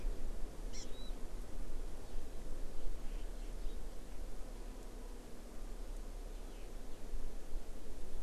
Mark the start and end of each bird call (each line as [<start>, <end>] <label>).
[0.69, 0.89] Hawaii Amakihi (Chlorodrepanis virens)
[0.89, 1.09] Warbling White-eye (Zosterops japonicus)